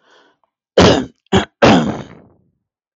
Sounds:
Cough